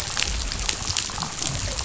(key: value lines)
label: biophony
recorder: SoundTrap 500